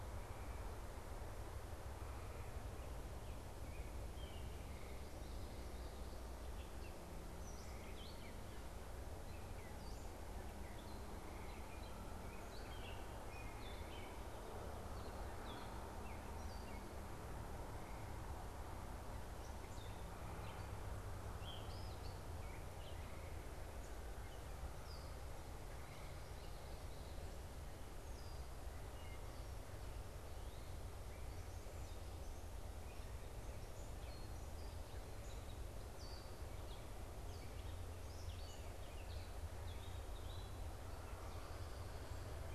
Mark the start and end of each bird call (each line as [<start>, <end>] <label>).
[0.00, 16.93] Gray Catbird (Dumetella carolinensis)
[5.03, 6.23] Common Yellowthroat (Geothlypis trichas)
[19.13, 29.43] Gray Catbird (Dumetella carolinensis)
[33.63, 42.54] Gray Catbird (Dumetella carolinensis)